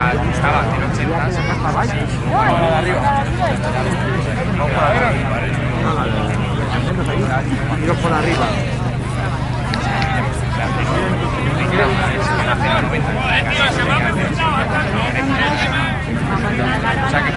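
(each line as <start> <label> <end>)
0.0 An outdoor scene filled with the lively murmur of a Spanish-speaking crowd with multiple overlapping voices creating a bustling atmosphere of casual conversation and social interaction. 17.4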